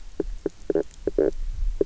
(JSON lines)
{"label": "biophony, knock croak", "recorder": "SoundTrap 300"}